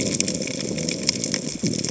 {"label": "biophony", "recorder": "HydroMoth"}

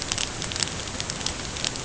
{"label": "ambient", "recorder": "HydroMoth"}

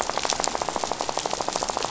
{"label": "biophony, rattle", "recorder": "SoundTrap 500"}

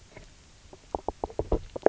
{"label": "biophony, knock croak", "recorder": "SoundTrap 300"}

